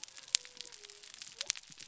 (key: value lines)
label: biophony
recorder: SoundTrap 300